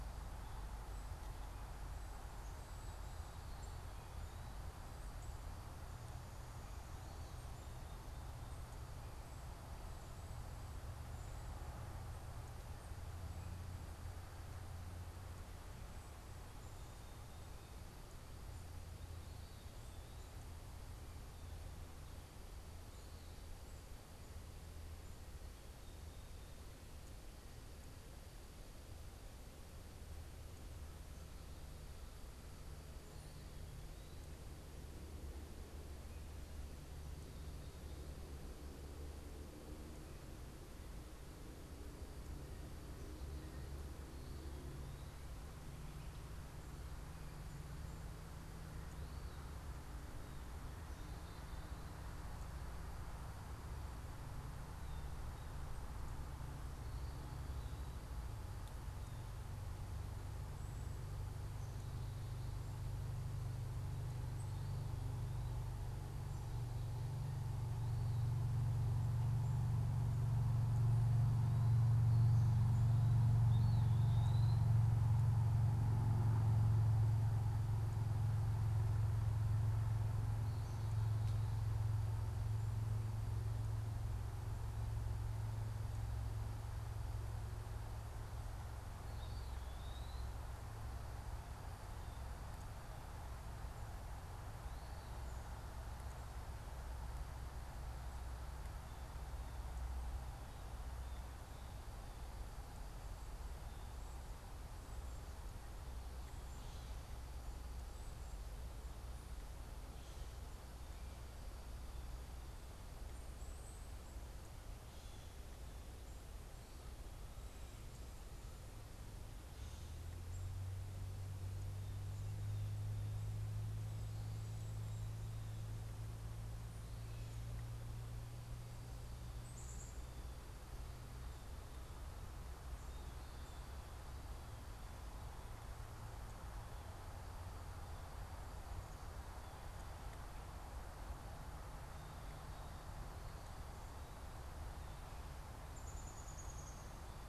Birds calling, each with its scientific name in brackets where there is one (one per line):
Black-capped Chickadee (Poecile atricapillus)
Eastern Wood-Pewee (Contopus virens)